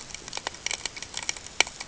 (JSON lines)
{"label": "ambient", "recorder": "HydroMoth"}